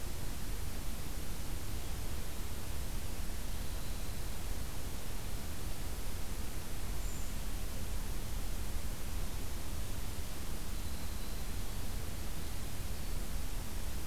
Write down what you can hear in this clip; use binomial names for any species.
Troglodytes hiemalis, Certhia americana